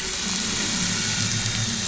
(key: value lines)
label: anthrophony, boat engine
recorder: SoundTrap 500